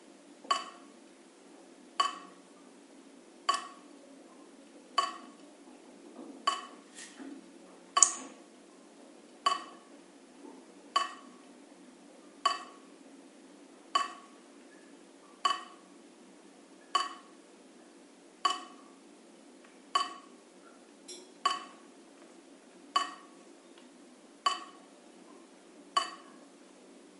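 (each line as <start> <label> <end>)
0.1 Liquid is dripping. 1.0
1.8 Liquid is dripping. 2.3
3.4 Liquid is dripping. 3.7
4.8 Liquid is dripping. 5.3
6.2 Liquid is dripping. 6.7
7.8 Liquid dripping and splashing. 8.3
9.3 Liquid is dripping. 9.9
10.7 Liquid is dripping. 11.2
12.2 Liquid is dripping. 12.8
13.6 Liquid is dripping. 14.3
15.3 Liquid is dripping. 15.7
16.7 Liquid is dripping. 17.2
18.3 Liquid is dripping. 18.7
19.8 Liquid is dripping. 20.2
21.2 Liquid is dripping. 21.7
22.7 Liquid is dripping. 23.2
24.3 Liquid is dripping. 24.8
25.7 Liquid is dripping. 26.2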